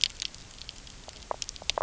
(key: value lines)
label: biophony, knock croak
recorder: SoundTrap 300